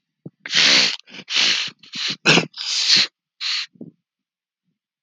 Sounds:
Sniff